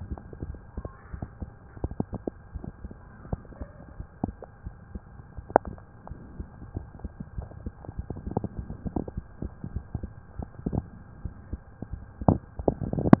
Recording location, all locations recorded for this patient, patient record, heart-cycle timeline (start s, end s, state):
mitral valve (MV)
aortic valve (AV)+pulmonary valve (PV)+tricuspid valve (TV)+mitral valve (MV)
#Age: Child
#Sex: Male
#Height: 132.0 cm
#Weight: 50.6 kg
#Pregnancy status: False
#Murmur: Absent
#Murmur locations: nan
#Most audible location: nan
#Systolic murmur timing: nan
#Systolic murmur shape: nan
#Systolic murmur grading: nan
#Systolic murmur pitch: nan
#Systolic murmur quality: nan
#Diastolic murmur timing: nan
#Diastolic murmur shape: nan
#Diastolic murmur grading: nan
#Diastolic murmur pitch: nan
#Diastolic murmur quality: nan
#Outcome: Normal
#Campaign: 2015 screening campaign
0.00	2.52	unannotated
2.52	2.64	S1
2.64	2.81	systole
2.81	2.92	S2
2.92	3.26	diastole
3.26	3.44	S1
3.44	3.58	systole
3.58	3.68	S2
3.68	3.96	diastole
3.96	4.06	S1
4.06	4.24	systole
4.24	4.36	S2
4.36	4.64	diastole
4.64	4.74	S1
4.74	4.92	systole
4.92	5.02	S2
5.02	5.35	diastole
5.35	5.48	S1
5.48	5.64	systole
5.64	5.74	S2
5.74	6.08	diastole
6.08	6.18	S1
6.18	6.36	systole
6.36	6.46	S2
6.46	6.73	diastole
6.73	6.88	S1
6.88	7.00	systole
7.00	7.10	S2
7.10	7.36	diastole
7.36	7.47	S1
7.47	7.64	systole
7.64	7.74	S2
7.74	7.96	diastole
7.96	8.06	S1
8.06	13.20	unannotated